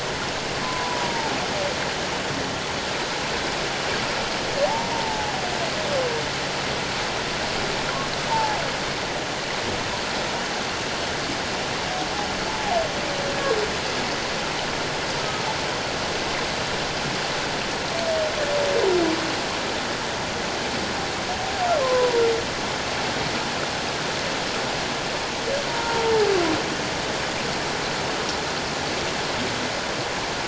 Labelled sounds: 0.6	1.3	humpback whale, 0.84 to 1.1 kHz
4.6	5.3	humpback whale, 0.78 to 0.97 kHz
8.3	8.6	humpback whale, 0.78 to 1.0 kHz
12.5	12.8	humpback whale, 0.78 to 1.0 kHz
21.8	22.2	humpback whale, 0.91 to 1.1 kHz
25.7	26.3	humpback whale, 0.78 to 0.97 kHz

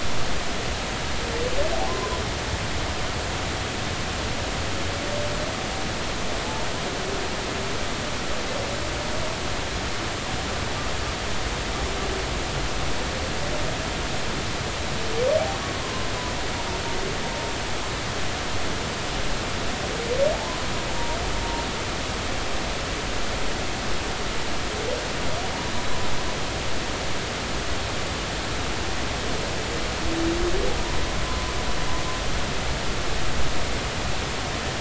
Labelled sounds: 1.9	2.1	humpback whale, 0.96 to 1.1 kHz
15.8	16.1	humpback whale, 0.99 to 1.1 kHz

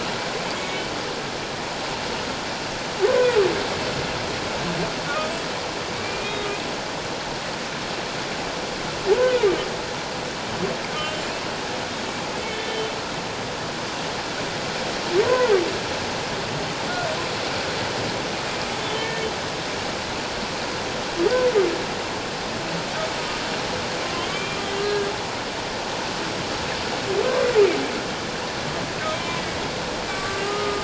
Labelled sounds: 0.6	0.9	humpback whale, 2.1 to 2.3 kHz
5.1	5.3	humpback whale, 1.1 to 1.3 kHz
6.0	6.5	humpback whale, 2.2 to 3.8 kHz
11.0	11.3	humpback whale, 2.9 to 3.2 kHz
12.4	12.7	humpback whale, 2.1 to 2.3 kHz
15.2	15.6	humpback whale, 0.78 to 1.1 kHz
18.9	19.2	humpback whale, 1.7 to 1.8 kHz
24.3	25.1	humpback whale, 1.6 to 3.2 kHz
29.1	29.4	humpback whale, 2.2 to 2.4 kHz
30.1	30.8	humpback whale, 1.1 to 1.6 kHz

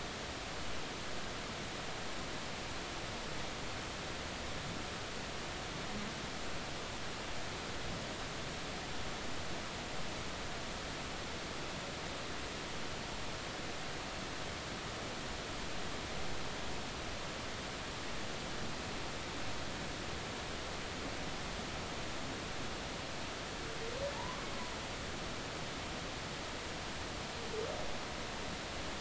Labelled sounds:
24.1	24.4	humpback whale, 0.83 to 1.2 kHz

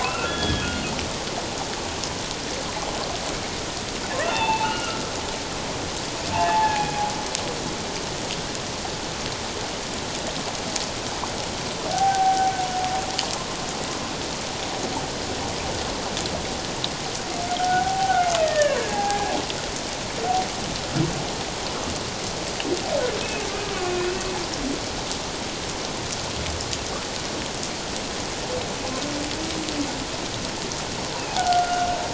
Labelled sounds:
0.0	0.7	humpback whale, 0.97 to 3.4 kHz
4.2	5.0	humpback whale, 0.78 to 3.6 kHz
6.3	7.1	humpback whale, 0.78 to 2.6 kHz
11.9	12.5	humpback whale, 0.78 to 0.84 kHz
17.6	19.3	humpback whale, 0.78 to 1.9 kHz
23.2	23.5	humpback whale, 2.4 to 2.7 kHz
31.3	31.9	humpback whale, 0.78 to 1.5 kHz

